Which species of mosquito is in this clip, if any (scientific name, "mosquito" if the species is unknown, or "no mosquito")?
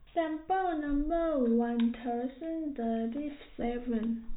no mosquito